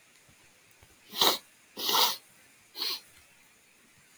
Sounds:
Sniff